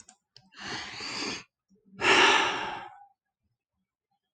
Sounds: Sigh